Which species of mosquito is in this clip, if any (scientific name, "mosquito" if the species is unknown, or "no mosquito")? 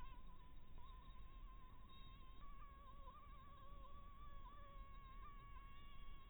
Anopheles maculatus